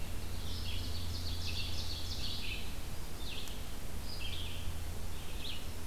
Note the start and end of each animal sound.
[0.00, 5.87] Red-eyed Vireo (Vireo olivaceus)
[0.27, 2.52] Ovenbird (Seiurus aurocapilla)

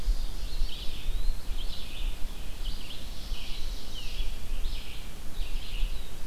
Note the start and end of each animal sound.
[0.00, 0.97] Ovenbird (Seiurus aurocapilla)
[0.00, 6.27] Red-eyed Vireo (Vireo olivaceus)
[0.41, 1.60] Eastern Wood-Pewee (Contopus virens)
[2.40, 4.35] Ovenbird (Seiurus aurocapilla)

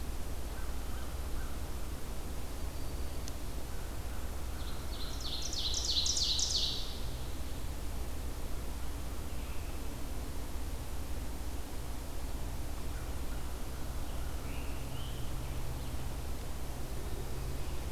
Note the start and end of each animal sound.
[0.43, 1.63] American Crow (Corvus brachyrhynchos)
[2.15, 3.41] Black-throated Green Warbler (Setophaga virens)
[4.37, 7.34] Ovenbird (Seiurus aurocapilla)
[9.15, 10.07] Red-eyed Vireo (Vireo olivaceus)
[12.76, 15.18] American Crow (Corvus brachyrhynchos)
[13.96, 15.68] Scarlet Tanager (Piranga olivacea)

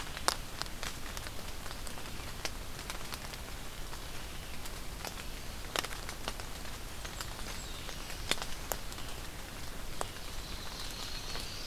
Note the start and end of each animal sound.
[6.42, 7.78] Blackburnian Warbler (Setophaga fusca)
[7.43, 8.69] Black-throated Blue Warbler (Setophaga caerulescens)
[10.28, 11.66] Yellow-rumped Warbler (Setophaga coronata)

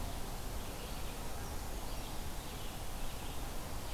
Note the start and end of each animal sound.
[0.00, 3.94] Red-eyed Vireo (Vireo olivaceus)
[1.20, 2.41] Brown Creeper (Certhia americana)

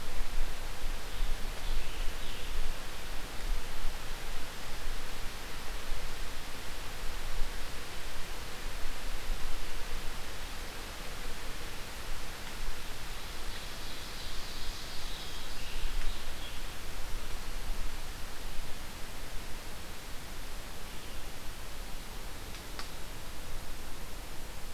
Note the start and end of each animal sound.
[1.00, 2.64] Scarlet Tanager (Piranga olivacea)
[13.57, 15.46] Ovenbird (Seiurus aurocapilla)
[15.03, 16.62] Scarlet Tanager (Piranga olivacea)

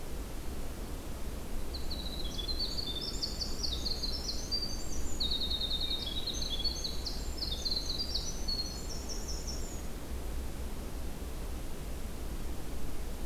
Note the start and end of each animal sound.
[1.51, 9.96] Winter Wren (Troglodytes hiemalis)
[5.79, 6.45] Hermit Thrush (Catharus guttatus)

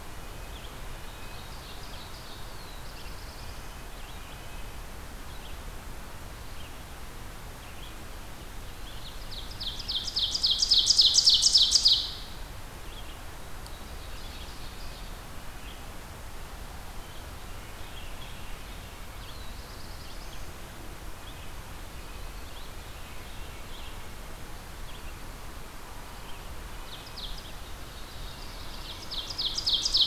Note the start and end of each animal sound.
[0.00, 4.89] Red-breasted Nuthatch (Sitta canadensis)
[0.00, 24.00] Red-eyed Vireo (Vireo olivaceus)
[0.89, 2.49] Ovenbird (Seiurus aurocapilla)
[2.31, 3.93] Black-throated Blue Warbler (Setophaga caerulescens)
[8.51, 9.26] Eastern Wood-Pewee (Contopus virens)
[9.23, 12.10] Ovenbird (Seiurus aurocapilla)
[13.47, 15.10] Ovenbird (Seiurus aurocapilla)
[18.95, 20.71] Black-throated Blue Warbler (Setophaga caerulescens)
[21.82, 23.70] Red-breasted Nuthatch (Sitta canadensis)
[24.72, 30.07] Red-eyed Vireo (Vireo olivaceus)
[26.68, 30.07] Ovenbird (Seiurus aurocapilla)

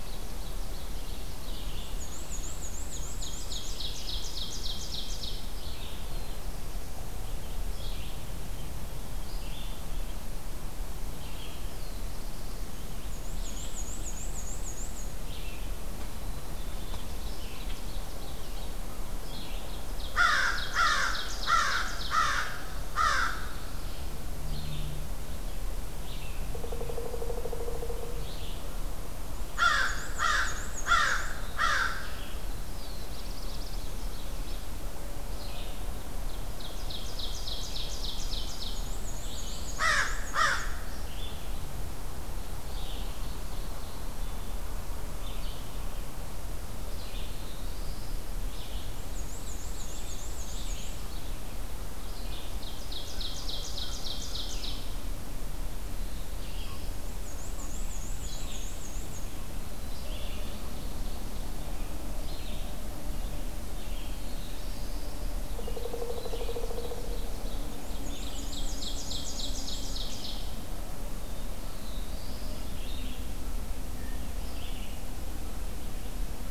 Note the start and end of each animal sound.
[0.00, 1.33] Ovenbird (Seiurus aurocapilla)
[0.00, 75.14] Red-eyed Vireo (Vireo olivaceus)
[1.59, 3.81] Black-and-white Warbler (Mniotilta varia)
[2.83, 5.44] Ovenbird (Seiurus aurocapilla)
[5.91, 7.24] Black-throated Blue Warbler (Setophaga caerulescens)
[11.61, 13.01] Black-throated Blue Warbler (Setophaga caerulescens)
[12.93, 15.07] Black-and-white Warbler (Mniotilta varia)
[15.90, 17.08] Black-capped Chickadee (Poecile atricapillus)
[16.80, 18.76] Ovenbird (Seiurus aurocapilla)
[19.25, 22.25] Ovenbird (Seiurus aurocapilla)
[20.11, 23.59] American Crow (Corvus brachyrhynchos)
[26.32, 28.28] Pileated Woodpecker (Dryocopus pileatus)
[29.17, 31.38] Black-and-white Warbler (Mniotilta varia)
[29.51, 32.16] American Crow (Corvus brachyrhynchos)
[32.63, 33.92] Black-throated Blue Warbler (Setophaga caerulescens)
[33.13, 34.73] Ovenbird (Seiurus aurocapilla)
[36.47, 38.77] Ovenbird (Seiurus aurocapilla)
[38.55, 40.77] Black-and-white Warbler (Mniotilta varia)
[39.64, 40.61] American Crow (Corvus brachyrhynchos)
[42.50, 44.22] Ovenbird (Seiurus aurocapilla)
[46.86, 48.21] Black-throated Blue Warbler (Setophaga caerulescens)
[48.82, 51.05] Black-and-white Warbler (Mniotilta varia)
[52.23, 54.85] Ovenbird (Seiurus aurocapilla)
[53.20, 54.64] American Crow (Corvus brachyrhynchos)
[55.75, 57.00] Black-throated Blue Warbler (Setophaga caerulescens)
[56.91, 59.33] Black-and-white Warbler (Mniotilta varia)
[59.73, 61.66] Ovenbird (Seiurus aurocapilla)
[63.55, 65.33] Black-throated Blue Warbler (Setophaga caerulescens)
[65.20, 67.31] Pileated Woodpecker (Dryocopus pileatus)
[66.27, 67.64] Ovenbird (Seiurus aurocapilla)
[67.62, 69.96] Black-and-white Warbler (Mniotilta varia)
[68.16, 70.47] Ovenbird (Seiurus aurocapilla)
[71.05, 72.67] Black-throated Blue Warbler (Setophaga caerulescens)

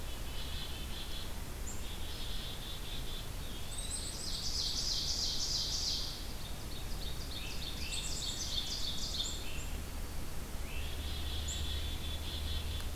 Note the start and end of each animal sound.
[0.00, 5.08] Black-capped Chickadee (Poecile atricapillus)
[3.24, 4.11] Eastern Wood-Pewee (Contopus virens)
[3.84, 9.46] Ovenbird (Seiurus aurocapilla)
[7.14, 10.96] Great Crested Flycatcher (Myiarchus crinitus)
[7.79, 8.55] Black-capped Chickadee (Poecile atricapillus)
[9.13, 9.79] Black-capped Chickadee (Poecile atricapillus)
[10.83, 12.95] Black-capped Chickadee (Poecile atricapillus)

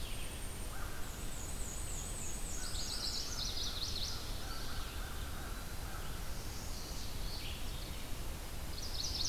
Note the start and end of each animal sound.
[0.00, 0.77] Golden-crowned Kinglet (Regulus satrapa)
[0.65, 1.18] American Crow (Corvus brachyrhynchos)
[0.96, 3.28] Black-and-white Warbler (Mniotilta varia)
[2.43, 6.39] American Crow (Corvus brachyrhynchos)
[2.46, 4.96] Chestnut-sided Warbler (Setophaga pensylvanica)
[4.40, 5.87] Eastern Wood-Pewee (Contopus virens)
[6.10, 7.24] Chestnut-sided Warbler (Setophaga pensylvanica)
[7.13, 8.01] Mourning Warbler (Geothlypis philadelphia)
[7.22, 9.29] Red-eyed Vireo (Vireo olivaceus)
[8.60, 9.29] Chestnut-sided Warbler (Setophaga pensylvanica)

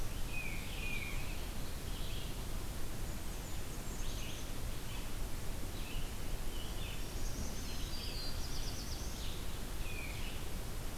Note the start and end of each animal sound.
[0.00, 10.97] Red-eyed Vireo (Vireo olivaceus)
[0.14, 1.21] Tufted Titmouse (Baeolophus bicolor)
[2.77, 4.06] Blackburnian Warbler (Setophaga fusca)
[3.81, 4.57] Black-capped Chickadee (Poecile atricapillus)
[6.99, 8.60] Black-throated Green Warbler (Setophaga virens)
[7.59, 9.28] Black-throated Blue Warbler (Setophaga caerulescens)
[9.81, 10.33] Tufted Titmouse (Baeolophus bicolor)

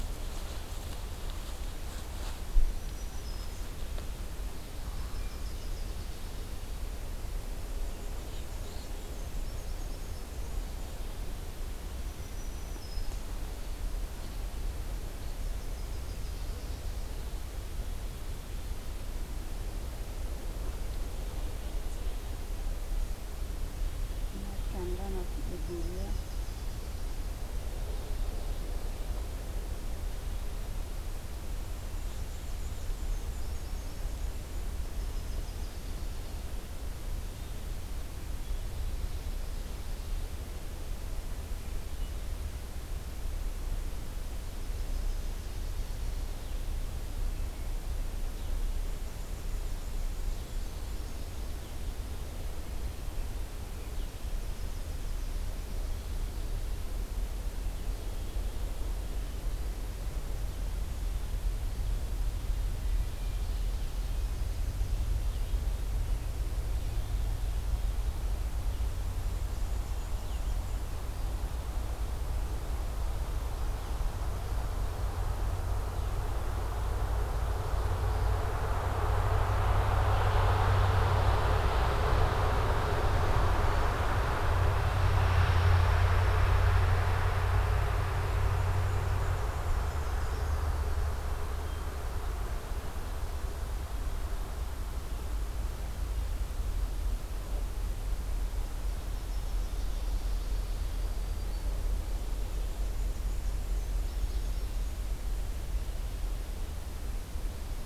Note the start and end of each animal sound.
[2.50, 3.80] Black-throated Green Warbler (Setophaga virens)
[4.72, 6.31] Yellow-rumped Warbler (Setophaga coronata)
[7.38, 11.24] Black-and-white Warbler (Mniotilta varia)
[9.01, 10.55] Yellow-rumped Warbler (Setophaga coronata)
[11.90, 13.35] Black-throated Green Warbler (Setophaga virens)
[15.10, 16.49] Yellow-rumped Warbler (Setophaga coronata)
[25.29, 27.14] Yellow-rumped Warbler (Setophaga coronata)
[31.65, 33.32] Blackburnian Warbler (Setophaga fusca)
[33.28, 36.03] Yellow-rumped Warbler (Setophaga coronata)
[44.62, 45.91] Yellow-rumped Warbler (Setophaga coronata)
[48.91, 51.62] Black-and-white Warbler (Mniotilta varia)
[54.26, 55.37] Yellow-rumped Warbler (Setophaga coronata)
[87.99, 90.58] Black-and-white Warbler (Mniotilta varia)
[89.58, 91.02] Yellow-rumped Warbler (Setophaga coronata)
[98.73, 99.85] Yellow-rumped Warbler (Setophaga coronata)
[100.62, 101.87] Black-throated Green Warbler (Setophaga virens)
[102.22, 104.89] Black-and-white Warbler (Mniotilta varia)
[103.88, 104.96] Yellow-rumped Warbler (Setophaga coronata)

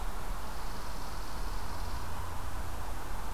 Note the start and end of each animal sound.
[0.30, 2.23] Chipping Sparrow (Spizella passerina)

